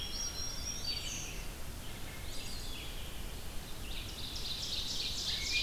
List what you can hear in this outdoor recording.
Black-throated Green Warbler, Swainson's Thrush, Rose-breasted Grosbeak, Red-eyed Vireo, Wood Thrush, Eastern Wood-Pewee, Ovenbird